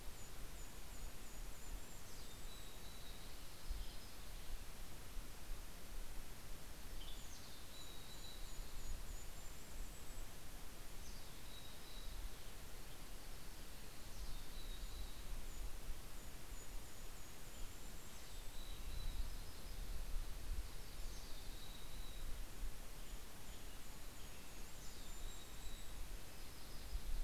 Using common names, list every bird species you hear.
Golden-crowned Kinglet, Mountain Chickadee, Yellow-rumped Warbler, Western Tanager, Red-breasted Nuthatch